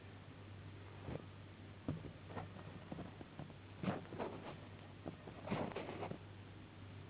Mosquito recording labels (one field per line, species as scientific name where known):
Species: Anopheles gambiae s.s.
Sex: female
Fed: unfed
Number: one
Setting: insect culture